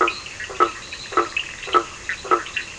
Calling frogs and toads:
Boana faber (Hylidae), Boana leptolineata (Hylidae), Sphaenorhynchus surdus (Hylidae)
10:15pm

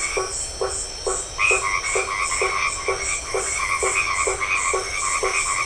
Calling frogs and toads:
Boana albomarginata (Hylidae), Boana faber (Hylidae)
9:00pm

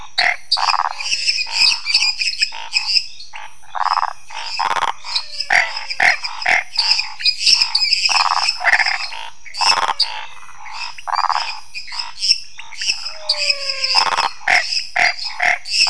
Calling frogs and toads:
Dendropsophus minutus (Hylidae), Pithecopus azureus (Hylidae), Physalaemus albonotatus (Leptodactylidae), Scinax fuscovarius (Hylidae), Phyllomedusa sauvagii (Hylidae), Leptodactylus podicipinus (Leptodactylidae)
10:30pm

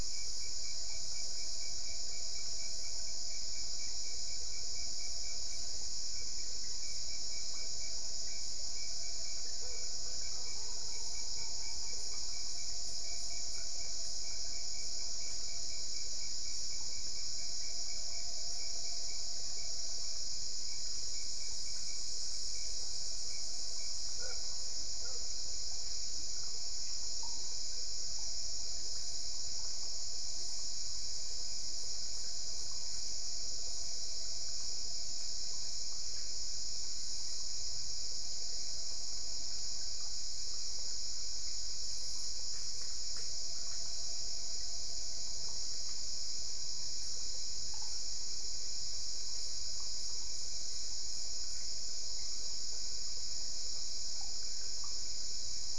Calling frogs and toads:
none
11:15pm

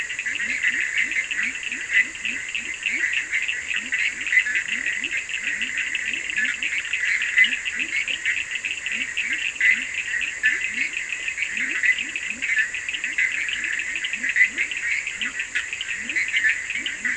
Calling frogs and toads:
Boana bischoffi (Hylidae), Leptodactylus latrans (Leptodactylidae), Sphaenorhynchus surdus (Hylidae)
1:15am

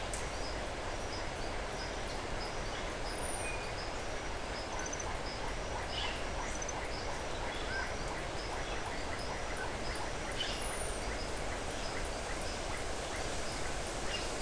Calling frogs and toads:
Adenomera marmorata (Leptodactylidae), Leptodactylus notoaktites (Leptodactylidae)
5:30pm

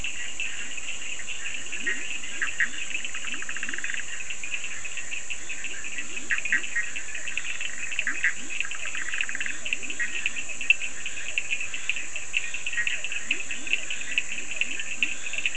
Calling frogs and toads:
Boana bischoffi (Hylidae), Leptodactylus latrans (Leptodactylidae), Sphaenorhynchus surdus (Hylidae)
10:30pm

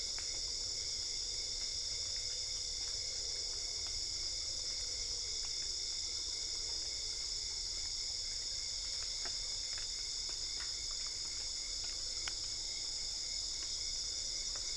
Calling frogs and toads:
none
12:00am

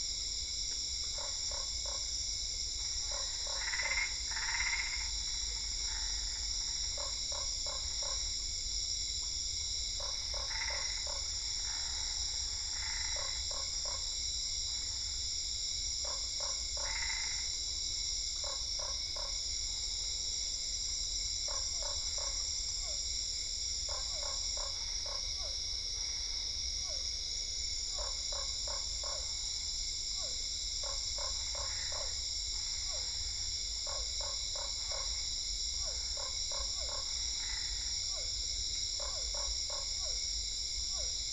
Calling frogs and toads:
Boana lundii (Hylidae), Boana albopunctata (Hylidae), Physalaemus cuvieri (Leptodactylidae)
7:30pm

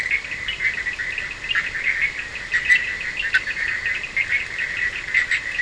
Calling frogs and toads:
Sphaenorhynchus surdus (Hylidae)
4:00am

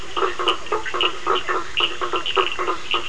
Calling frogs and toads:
Boana faber (Hylidae), Sphaenorhynchus surdus (Hylidae)
9:15pm

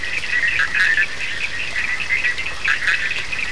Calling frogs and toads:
Boana bischoffi (Hylidae), Sphaenorhynchus surdus (Hylidae)
2:30am

